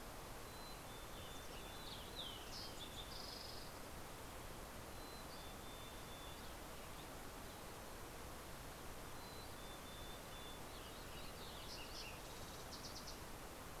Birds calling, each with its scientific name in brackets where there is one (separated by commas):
Fox Sparrow (Passerella iliaca), Western Tanager (Piranga ludoviciana), Mountain Chickadee (Poecile gambeli)